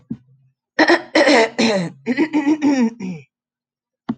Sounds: Throat clearing